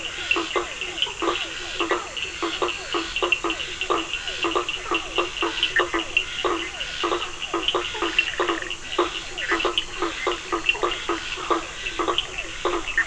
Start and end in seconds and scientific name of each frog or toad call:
0.0	13.0	Boana faber
0.0	13.0	Physalaemus cuvieri
0.0	13.0	Sphaenorhynchus surdus
5.7	6.0	Boana bischoffi
7.7	9.6	Boana bischoffi
7.9	8.2	Boana prasina
10.7	11.0	Boana prasina